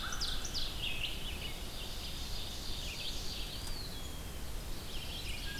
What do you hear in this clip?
American Crow, Ovenbird, Red-eyed Vireo, Eastern Wood-Pewee